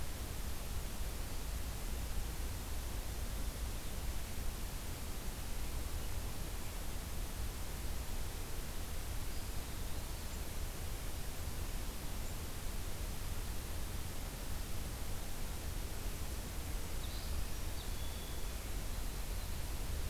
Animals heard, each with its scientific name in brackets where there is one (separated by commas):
Red-winged Blackbird (Agelaius phoeniceus), Eastern Wood-Pewee (Contopus virens)